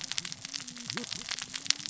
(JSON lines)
{"label": "biophony, cascading saw", "recorder": "SoundTrap 600 or HydroMoth"}